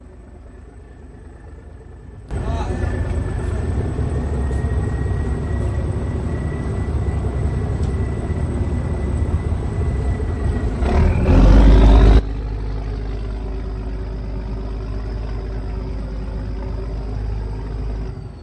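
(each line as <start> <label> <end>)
0.0 A ferry engine idles, producing a monotonic sound nearby. 10.7
10.7 The ferry engine runs at high RPM in a monotonic tone nearby. 18.4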